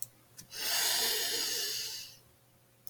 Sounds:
Sniff